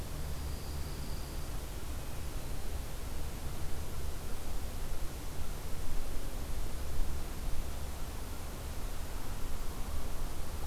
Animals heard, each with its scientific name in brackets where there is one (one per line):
Dark-eyed Junco (Junco hyemalis)